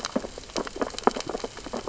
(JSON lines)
{"label": "biophony, sea urchins (Echinidae)", "recorder": "SoundTrap 600 or HydroMoth"}